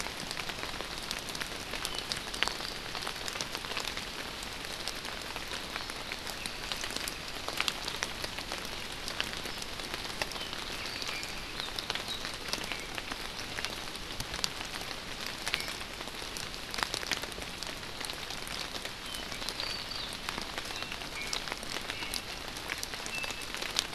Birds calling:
Iiwi (Drepanis coccinea)
Apapane (Himatione sanguinea)

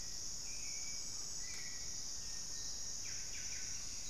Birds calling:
Scale-breasted Woodpecker (Celeus grammicus)
Hauxwell's Thrush (Turdus hauxwelli)
Buff-breasted Wren (Cantorchilus leucotis)

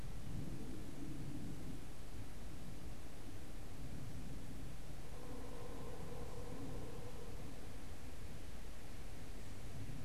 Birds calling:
Pileated Woodpecker (Dryocopus pileatus)

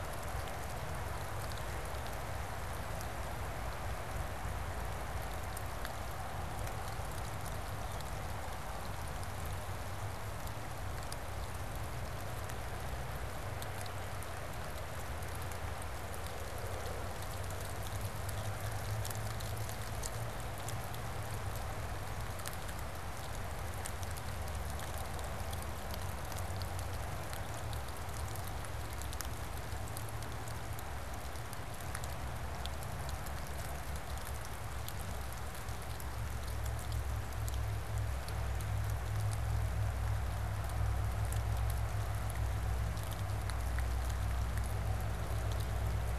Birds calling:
Blue Jay (Cyanocitta cristata)

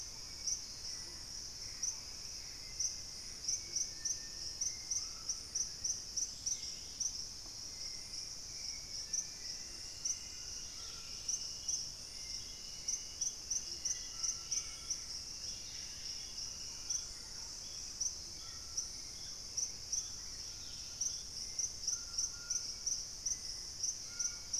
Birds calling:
Dusky-capped Greenlet (Pachysylvia hypoxantha)
Purple-throated Fruitcrow (Querula purpurata)
White-throated Toucan (Ramphastos tucanus)
Gray Antbird (Cercomacra cinerascens)
Thrush-like Wren (Campylorhynchus turdinus)
Hauxwell's Thrush (Turdus hauxwelli)

